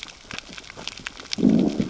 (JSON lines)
{"label": "biophony, growl", "recorder": "SoundTrap 600 or HydroMoth"}